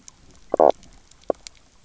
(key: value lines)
label: biophony, knock croak
recorder: SoundTrap 300